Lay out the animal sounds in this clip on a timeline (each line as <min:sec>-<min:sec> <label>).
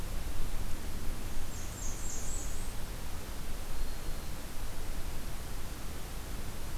0:01.3-0:02.9 Blackburnian Warbler (Setophaga fusca)
0:03.6-0:04.4 Black-throated Green Warbler (Setophaga virens)